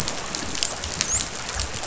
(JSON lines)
{"label": "biophony, dolphin", "recorder": "SoundTrap 500"}